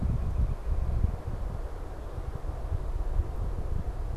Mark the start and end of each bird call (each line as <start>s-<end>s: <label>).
0.0s-1.8s: Northern Cardinal (Cardinalis cardinalis)